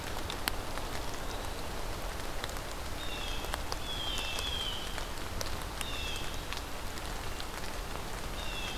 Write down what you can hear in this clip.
Eastern Wood-Pewee, Blue Jay